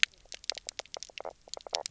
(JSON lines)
{"label": "biophony, knock croak", "recorder": "SoundTrap 300"}